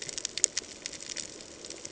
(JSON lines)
{"label": "ambient", "recorder": "HydroMoth"}